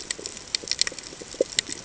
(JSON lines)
{"label": "ambient", "recorder": "HydroMoth"}